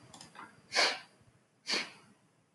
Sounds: Sniff